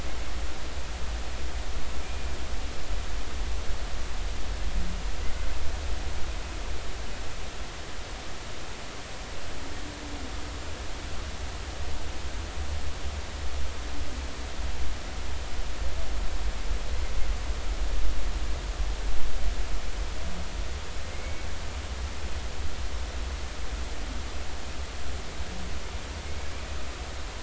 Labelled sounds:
2.0	2.3	humpback whale, 2.3 to 2.5 kHz
21.1	21.5	humpback whale, 2.1 to 2.3 kHz

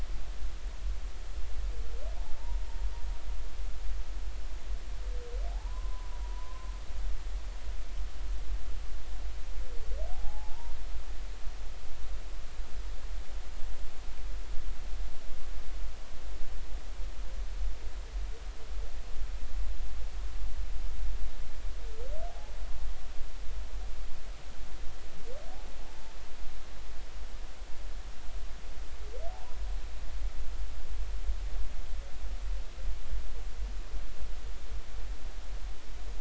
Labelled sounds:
5.5	6.7	humpback whale, 0.80 to 1.1 kHz
10.1	10.8	humpback whale, 0.80 to 1.0 kHz
22.3	22.5	humpback whale, 0.80 to 0.96 kHz
25.8	26.1	humpback whale, 0.83 to 0.93 kHz
29.3	29.6	humpback whale, 0.80 to 1.1 kHz

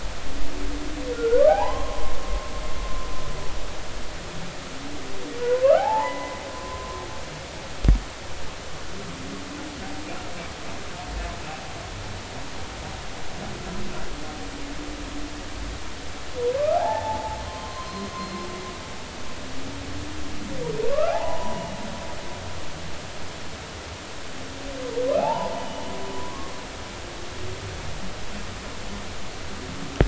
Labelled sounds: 1.1	2.2	humpback whale, 0.80 to 1.5 kHz
5.4	6.3	humpback whale, 0.80 to 2.1 kHz
16.6	18.1	humpback whale, 0.80 to 1.8 kHz
20.9	21.8	humpback whale, 0.80 to 2.9 kHz
25.2	26.8	humpback whale, 0.80 to 3.0 kHz

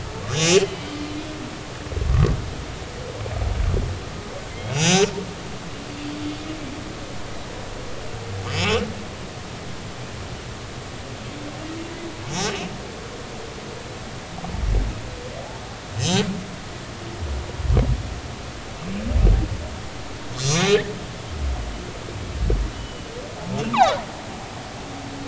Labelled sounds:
0.3	1.0	humpback whale, 2.3 to 6.0 kHz
4.5	5.1	humpback whale, 2.0 to 7.0 kHz
8.5	8.9	humpback whale, 2.5 to 5.4 kHz
15.9	16.2	humpback whale, 6.0 to 7.4 kHz
20.4	20.8	humpback whale, 2.3 to 6.6 kHz
22.7	24.0	humpback whale, 2.8 to 4.2 kHz

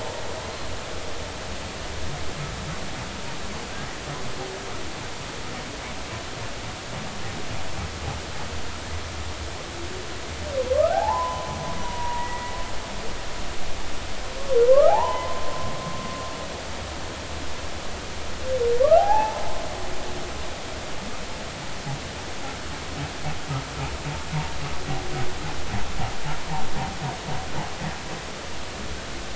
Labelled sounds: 10.7	12.5	humpback whale, 0.80 to 2.0 kHz
14.7	15.5	humpback whale, 0.80 to 1.4 kHz
19.0	19.5	humpback whale, 0.80 to 2.7 kHz

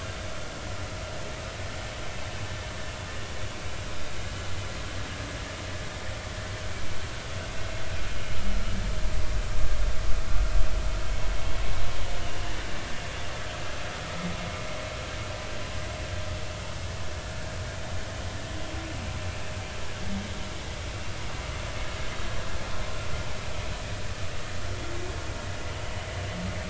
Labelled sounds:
10.3	10.5	vessel noise, 1.3 to 1.4 kHz

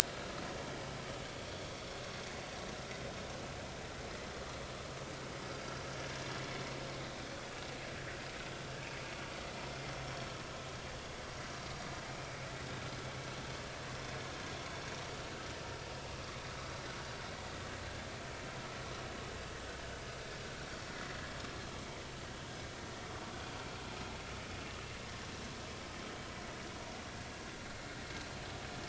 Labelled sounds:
26.3	26.6	vessel noise, 1.9 to 2.0 kHz

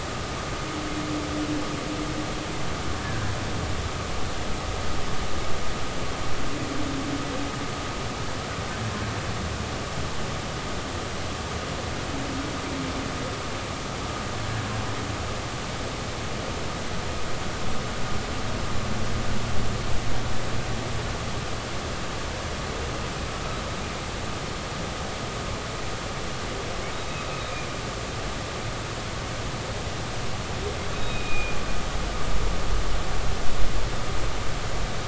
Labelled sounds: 3.0	3.3	humpback whale, 1.5 to 1.8 kHz
31.0	31.6	humpback whale, 2.4 to 3.9 kHz

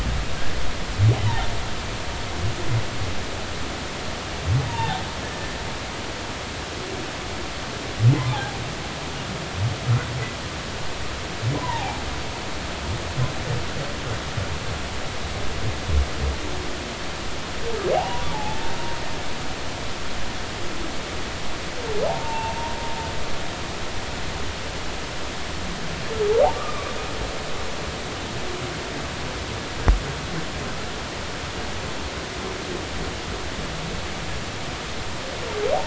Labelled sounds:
4.7	5.0	humpback whale, 0.80 to 3.7 kHz
11.6	12.0	humpback whale, 0.80 to 1.1 kHz
17.9	18.7	humpback whale, 0.80 to 1.0 kHz
22.1	22.6	humpback whale, 0.80 to 0.99 kHz
26.5	26.9	humpback whale, 1.0 to 1.3 kHz

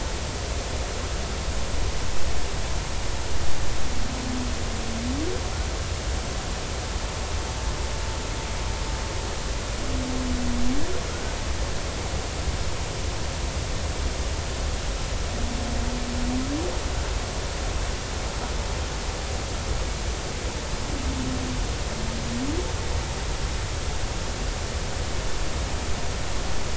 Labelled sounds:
11.1	11.3	humpback whale, 1.3 to 1.6 kHz

